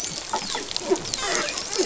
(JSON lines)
{"label": "biophony, dolphin", "recorder": "SoundTrap 500"}